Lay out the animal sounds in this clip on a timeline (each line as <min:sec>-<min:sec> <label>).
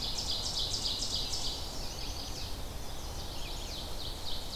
0:00.0-0:01.6 Ovenbird (Seiurus aurocapilla)
0:00.0-0:03.6 Red-eyed Vireo (Vireo olivaceus)
0:01.4-0:03.9 Chestnut-sided Warbler (Setophaga pensylvanica)
0:03.5-0:04.6 Ovenbird (Seiurus aurocapilla)